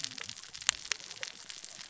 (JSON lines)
{"label": "biophony, cascading saw", "recorder": "SoundTrap 600 or HydroMoth"}